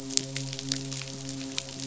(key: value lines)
label: biophony, midshipman
recorder: SoundTrap 500